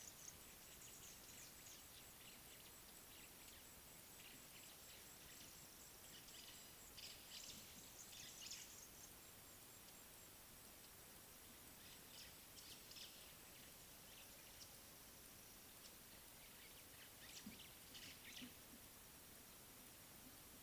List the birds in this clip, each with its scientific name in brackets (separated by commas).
White-browed Sparrow-Weaver (Plocepasser mahali)